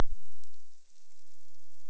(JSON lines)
{"label": "biophony", "recorder": "SoundTrap 300"}